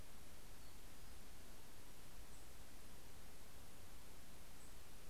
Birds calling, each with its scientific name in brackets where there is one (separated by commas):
Nashville Warbler (Leiothlypis ruficapilla)